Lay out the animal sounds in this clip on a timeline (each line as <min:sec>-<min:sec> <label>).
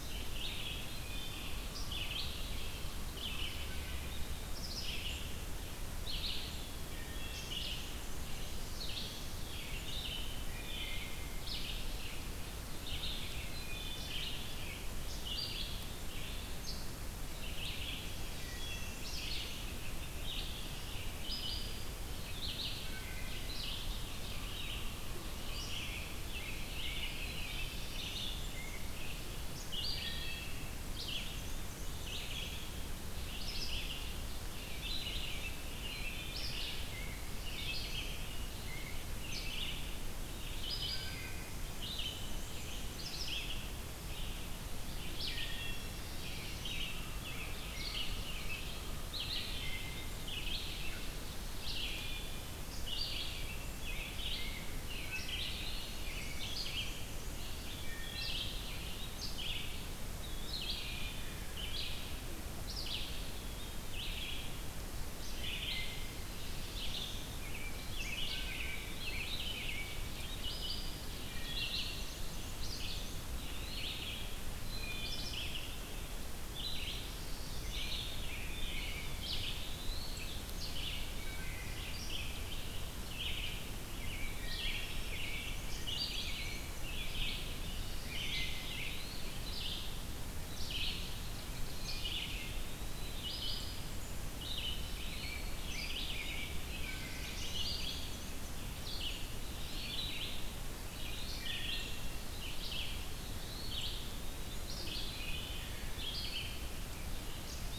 0:00.0-0:38.1 Red-eyed Vireo (Vireo olivaceus)
0:00.8-0:01.6 Wood Thrush (Hylocichla mustelina)
0:06.8-0:07.6 Wood Thrush (Hylocichla mustelina)
0:10.4-0:11.2 Wood Thrush (Hylocichla mustelina)
0:13.3-0:14.2 Wood Thrush (Hylocichla mustelina)
0:18.2-0:19.7 Wood Thrush (Hylocichla mustelina)
0:22.7-0:24.2 Wood Thrush (Hylocichla mustelina)
0:26.1-0:28.6 American Robin (Turdus migratorius)
0:29.3-0:30.8 Wood Thrush (Hylocichla mustelina)
0:30.9-0:32.4 Black-and-white Warbler (Mniotilta varia)
0:35.7-0:36.6 Wood Thrush (Hylocichla mustelina)
0:39.0-1:36.5 Red-eyed Vireo (Vireo olivaceus)
0:40.6-0:41.6 Wood Thrush (Hylocichla mustelina)
0:44.8-0:46.2 Wood Thrush (Hylocichla mustelina)
0:45.6-0:47.1 Black-throated Blue Warbler (Setophaga caerulescens)
0:53.8-0:57.2 American Robin (Turdus migratorius)
0:57.2-0:58.9 Wood Thrush (Hylocichla mustelina)
1:00.9-1:01.6 Wood Thrush (Hylocichla mustelina)
1:08.3-1:08.9 Wood Thrush (Hylocichla mustelina)
1:08.7-1:09.4 Eastern Wood-Pewee (Contopus virens)
1:11.2-1:11.7 Wood Thrush (Hylocichla mustelina)
1:11.3-1:13.3 Black-and-white Warbler (Mniotilta varia)
1:12.3-1:14.2 Eastern Wood-Pewee (Contopus virens)
1:14.1-1:15.5 Wood Thrush (Hylocichla mustelina)
1:18.5-1:20.6 Eastern Wood-Pewee (Contopus virens)
1:21.1-1:22.0 Wood Thrush (Hylocichla mustelina)
1:23.9-1:27.6 American Robin (Turdus migratorius)
1:24.2-1:24.8 Wood Thrush (Hylocichla mustelina)
1:25.3-1:27.0 Black-and-white Warbler (Mniotilta varia)
1:28.0-1:29.6 Eastern Wood-Pewee (Contopus virens)
1:31.9-1:33.3 Eastern Wood-Pewee (Contopus virens)
1:34.0-1:35.8 Eastern Wood-Pewee (Contopus virens)
1:35.0-1:37.0 American Robin (Turdus migratorius)
1:36.9-1:38.6 Black-and-white Warbler (Mniotilta varia)
1:37.3-1:46.6 Red-eyed Vireo (Vireo olivaceus)
1:39.3-1:40.4 Eastern Wood-Pewee (Contopus virens)
1:41.3-1:42.3 Wood Thrush (Hylocichla mustelina)
1:42.9-1:45.0 Eastern Wood-Pewee (Contopus virens)
1:44.9-1:45.6 Wood Thrush (Hylocichla mustelina)